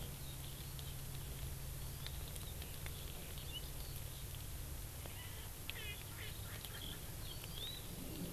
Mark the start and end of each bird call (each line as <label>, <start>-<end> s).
Erckel's Francolin (Pternistis erckelii), 5.0-7.0 s
Hawaii Amakihi (Chlorodrepanis virens), 7.3-7.9 s